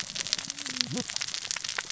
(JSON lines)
{"label": "biophony, cascading saw", "recorder": "SoundTrap 600 or HydroMoth"}